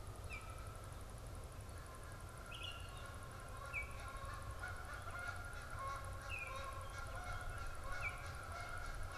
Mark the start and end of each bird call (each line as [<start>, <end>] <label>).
[0.00, 9.17] Canada Goose (Branta canadensis)
[0.09, 9.17] Baltimore Oriole (Icterus galbula)